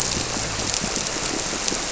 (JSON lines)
{"label": "biophony", "recorder": "SoundTrap 300"}